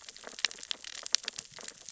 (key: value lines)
label: biophony, sea urchins (Echinidae)
recorder: SoundTrap 600 or HydroMoth